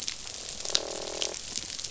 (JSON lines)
{"label": "biophony, croak", "recorder": "SoundTrap 500"}